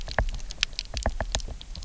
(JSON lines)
{"label": "biophony, knock", "recorder": "SoundTrap 300"}